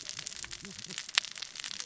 {"label": "biophony, cascading saw", "recorder": "SoundTrap 600 or HydroMoth"}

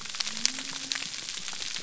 {"label": "biophony", "recorder": "SoundTrap 300"}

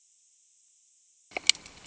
{"label": "ambient", "recorder": "HydroMoth"}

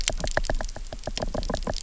{"label": "biophony, knock", "recorder": "SoundTrap 300"}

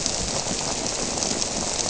{"label": "biophony", "recorder": "SoundTrap 300"}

